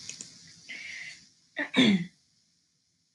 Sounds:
Throat clearing